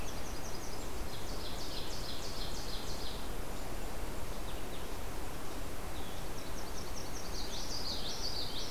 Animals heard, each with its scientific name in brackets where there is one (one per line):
Yellow-rumped Warbler (Setophaga coronata)
Common Yellowthroat (Geothlypis trichas)
Golden-crowned Kinglet (Regulus satrapa)
Ovenbird (Seiurus aurocapilla)
Blue-headed Vireo (Vireo solitarius)